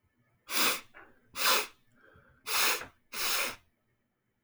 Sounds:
Sniff